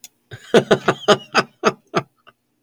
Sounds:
Laughter